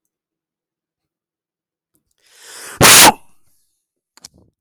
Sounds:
Sneeze